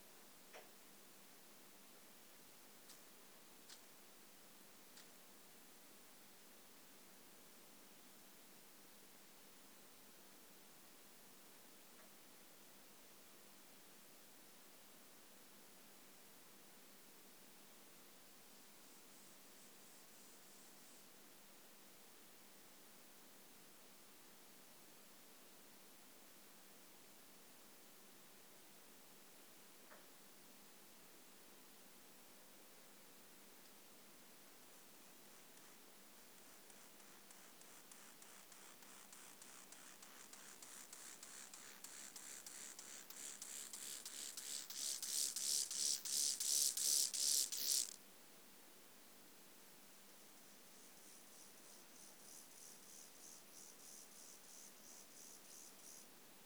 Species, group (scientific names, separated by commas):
Chorthippus mollis, Orthoptera